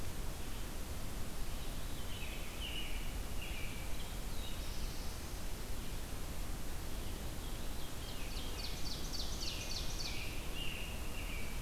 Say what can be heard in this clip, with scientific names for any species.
Catharus fuscescens, Turdus migratorius, Setophaga caerulescens, Seiurus aurocapilla